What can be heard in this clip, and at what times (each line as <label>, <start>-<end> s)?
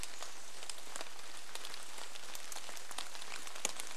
Chestnut-backed Chickadee call, 0-2 s
rain, 0-4 s